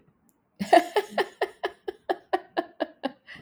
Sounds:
Laughter